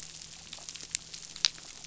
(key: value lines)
label: anthrophony, boat engine
recorder: SoundTrap 500